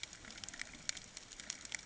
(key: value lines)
label: ambient
recorder: HydroMoth